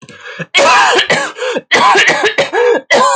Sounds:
Cough